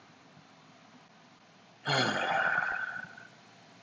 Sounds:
Sigh